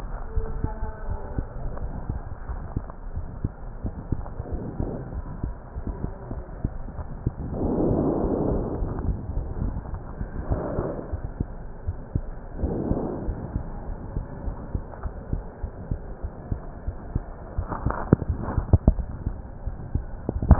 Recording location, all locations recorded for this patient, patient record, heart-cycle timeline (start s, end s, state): aortic valve (AV)
aortic valve (AV)+pulmonary valve (PV)+tricuspid valve (TV)+mitral valve (MV)
#Age: Child
#Sex: Male
#Height: 126.0 cm
#Weight: 24.7 kg
#Pregnancy status: False
#Murmur: Present
#Murmur locations: mitral valve (MV)+pulmonary valve (PV)+tricuspid valve (TV)
#Most audible location: mitral valve (MV)
#Systolic murmur timing: Holosystolic
#Systolic murmur shape: Plateau
#Systolic murmur grading: II/VI
#Systolic murmur pitch: Medium
#Systolic murmur quality: Blowing
#Diastolic murmur timing: nan
#Diastolic murmur shape: nan
#Diastolic murmur grading: nan
#Diastolic murmur pitch: nan
#Diastolic murmur quality: nan
#Outcome: Abnormal
#Campaign: 2015 screening campaign
0.00	8.78	unannotated
8.78	8.94	S1
8.94	9.06	systole
9.06	9.18	S2
9.18	9.34	diastole
9.34	9.48	S1
9.48	9.60	systole
9.60	9.74	S2
9.74	9.92	diastole
9.92	10.02	S1
10.02	10.20	systole
10.20	10.30	S2
10.30	10.50	diastole
10.50	10.62	S1
10.62	10.76	systole
10.76	10.88	S2
10.88	11.10	diastole
11.10	11.20	S1
11.20	11.36	systole
11.36	11.48	S2
11.48	11.85	diastole
11.85	11.98	S1
11.98	12.13	systole
12.13	12.25	S2
12.25	12.56	diastole
12.56	12.72	S1
12.72	12.89	systole
12.89	12.98	S2
12.98	13.24	diastole
13.24	13.36	S1
13.36	13.54	systole
13.54	13.62	S2
13.62	13.84	diastole
13.84	13.94	S1
13.94	14.14	systole
14.14	14.26	S2
14.26	14.44	diastole
14.44	14.54	S1
14.54	14.72	systole
14.72	14.84	S2
14.84	15.01	diastole
15.01	15.12	S1
15.12	15.30	systole
15.30	15.39	S2
15.39	15.61	diastole
15.61	15.70	S1
15.70	15.88	systole
15.88	15.98	S2
15.98	16.20	diastole
16.20	16.30	S1
16.30	16.48	systole
16.48	16.57	S2
16.57	16.84	diastole
16.84	16.94	S1
16.94	17.12	systole
17.12	17.26	S2
17.26	17.54	diastole
17.54	17.66	S1
17.66	17.84	systole
17.84	17.96	S2
17.96	20.59	unannotated